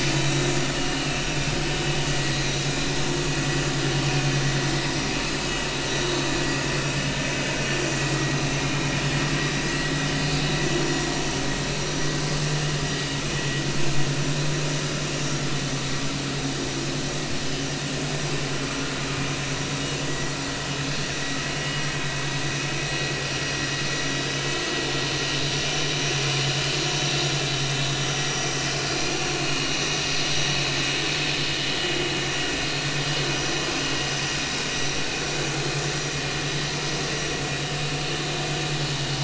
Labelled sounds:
0.2	0.5	vessel noise, 3.7 to 4.0 kHz
5.8	6.1	vessel noise, 3.8 to 6.0 kHz
8.6	8.9	vessel noise, 2.3 to 2.5 kHz
22.8	23.1	vessel noise, 5.7 to 5.8 kHz
24.1	24.4	vessel noise, 5.4 to 5.6 kHz
29.3	30.0	vessel noise, 2.4 to 6.1 kHz
34.7	35.0	vessel noise, 5.7 to 6.0 kHz
36.3	36.6	vessel noise, 5.9 to 6.1 kHz

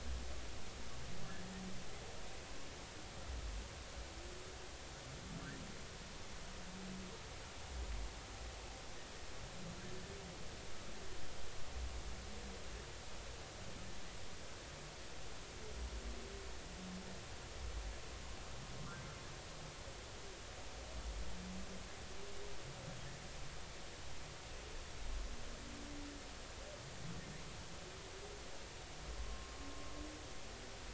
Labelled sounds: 29.2	29.5	humpback whale, 1.0 to 1.1 kHz

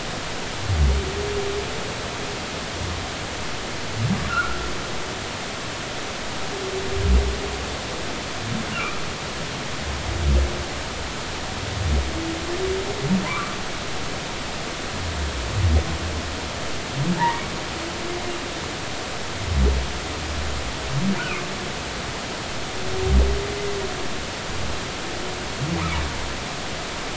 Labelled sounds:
4.3	4.6	humpback whale, 1.2 to 1.5 kHz
8.7	9.0	humpback whale, 1.1 to 1.5 kHz
13.3	13.6	humpback whale, 0.93 to 1.5 kHz
17.2	17.4	humpback whale, 0.83 to 2.0 kHz

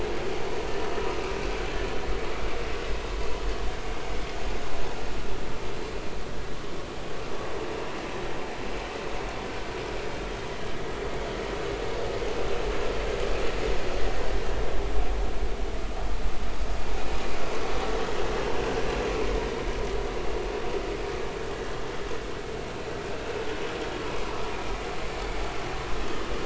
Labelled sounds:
17.4	17.7	vessel noise, 6.0 to 6.1 kHz
18.6	18.8	vessel noise, 1.5 to 1.7 kHz

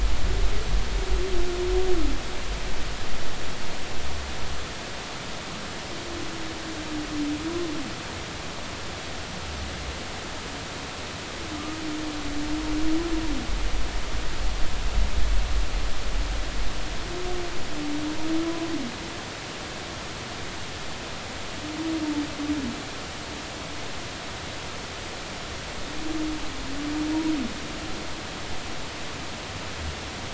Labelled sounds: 18.4	18.7	humpback whale, 0.96 to 1.1 kHz

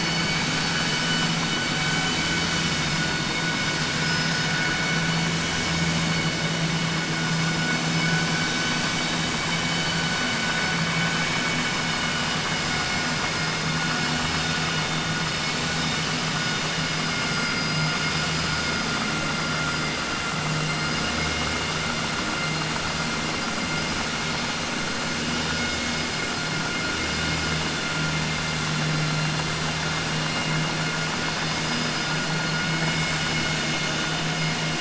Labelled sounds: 17.3	18.8	vessel noise, 4.2 to 5.7 kHz

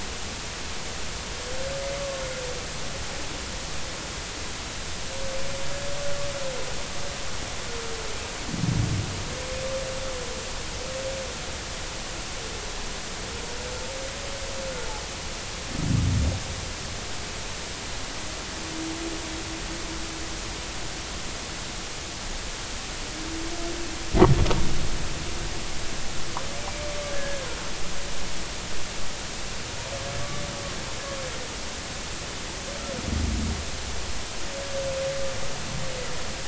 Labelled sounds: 27.1	27.5	humpback whale, 1.5 to 1.8 kHz

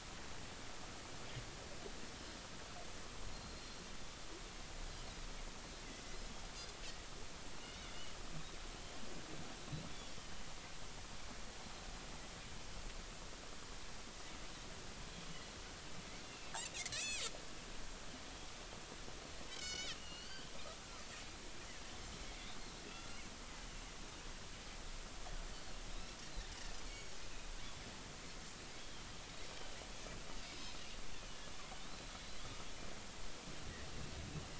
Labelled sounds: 3.3	3.8	Pacific white-sided dolphin, 4.1 to 4.3 kHz
9.9	10.2	Pacific white-sided dolphin, 3.3 to 3.5 kHz
16.2	17.2	Pacific white-sided dolphin, 2.0 to 7.9 kHz
19.5	20.5	Pacific white-sided dolphin, 1.2 to 6.9 kHz
22.2	23.2	Pacific white-sided dolphin, 1.3 to 2.3 kHz
25.9	26.2	Pacific white-sided dolphin, 3.7 to 4.1 kHz
26.8	27.1	Pacific white-sided dolphin, 2.2 to 6.8 kHz
28.8	29.0	Pacific white-sided dolphin, 3.1 to 3.4 kHz
30.4	30.8	Pacific white-sided dolphin, 3.6 to 5.3 kHz
31.8	32.1	Pacific white-sided dolphin, 3.6 to 4.1 kHz

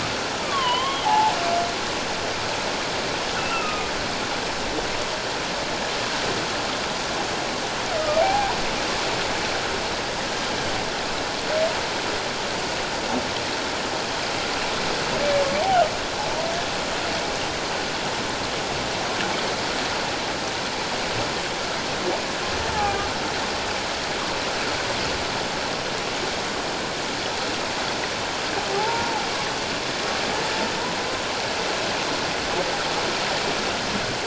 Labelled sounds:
1.0	1.3	humpback whale, 0.78 to 1.0 kHz
3.4	3.9	humpback whale, 1.2 to 2.8 kHz
8.2	8.5	humpback whale, 0.78 to 0.91 kHz
22.7	23.0	humpback whale, 0.78 to 0.91 kHz
28.8	29.3	humpback whale, 0.78 to 0.97 kHz

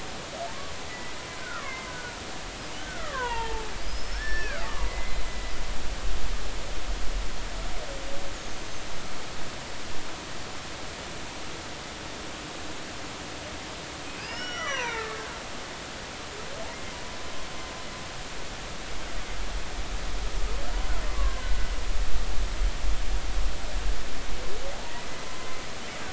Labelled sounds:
0.9	2.2	killer whale, Bigg's (transient), 0.99 to 2.3 kHz
2.8	5.5	killer whale, Bigg's (transient), 0.80 to 5.6 kHz
8.6	8.8	killer whale, Bigg's (transient), 6.2 to 6.4 kHz
14.1	15.2	killer whale, Bigg's (transient), 0.83 to 5.9 kHz

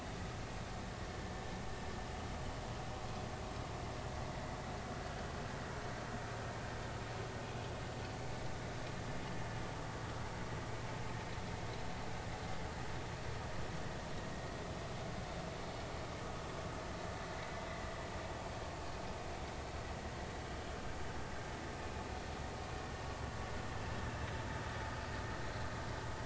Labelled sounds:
17.7	17.9	vessel noise, 1.9 to 2.1 kHz

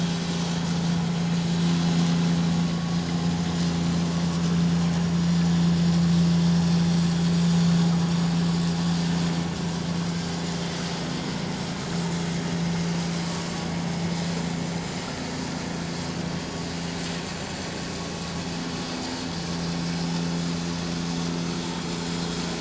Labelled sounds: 2.7	3.0	vessel noise, 1.1 to 1.2 kHz

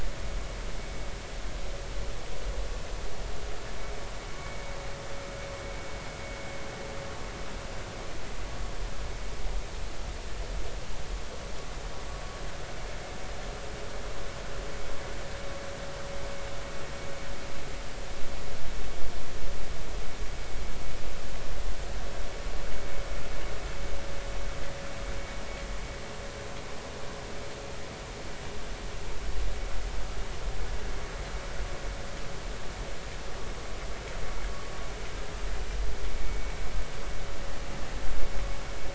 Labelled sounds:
4.4	4.6	vessel noise, 2.2 to 2.3 kHz
36.2	36.5	vessel noise, 2.2 to 2.3 kHz

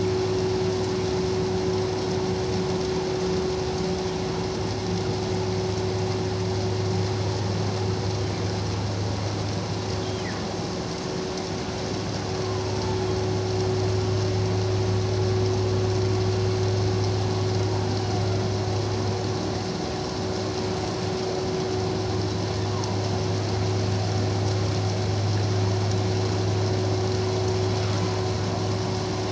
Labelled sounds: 10.0	10.3	humpback whale, 2.9 to 3.3 kHz

